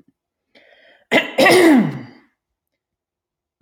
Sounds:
Throat clearing